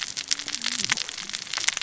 {"label": "biophony, cascading saw", "recorder": "SoundTrap 600 or HydroMoth"}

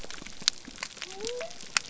{"label": "biophony", "recorder": "SoundTrap 300"}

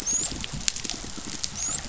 {"label": "biophony, dolphin", "recorder": "SoundTrap 500"}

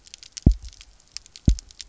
{"label": "biophony, double pulse", "recorder": "SoundTrap 300"}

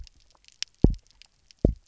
{"label": "biophony, double pulse", "recorder": "SoundTrap 300"}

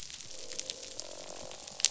{"label": "biophony, croak", "recorder": "SoundTrap 500"}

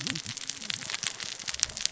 {"label": "biophony, cascading saw", "recorder": "SoundTrap 600 or HydroMoth"}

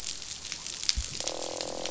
{"label": "biophony, croak", "recorder": "SoundTrap 500"}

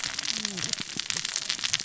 {"label": "biophony, cascading saw", "recorder": "SoundTrap 600 or HydroMoth"}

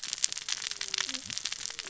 {"label": "biophony, cascading saw", "recorder": "SoundTrap 600 or HydroMoth"}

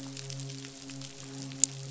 {"label": "biophony, midshipman", "recorder": "SoundTrap 500"}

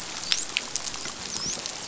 {"label": "biophony, dolphin", "recorder": "SoundTrap 500"}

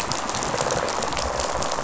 {"label": "biophony, rattle response", "recorder": "SoundTrap 500"}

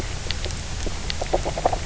{"label": "biophony, knock croak", "recorder": "SoundTrap 300"}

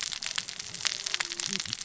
{"label": "biophony, cascading saw", "recorder": "SoundTrap 600 or HydroMoth"}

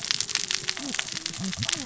{"label": "biophony, cascading saw", "recorder": "SoundTrap 600 or HydroMoth"}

